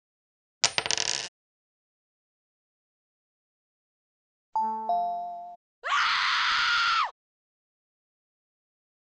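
At the start, a coin drops. Then about 5 seconds in, you can hear a telephone. Finally, about 6 seconds in, someone screams.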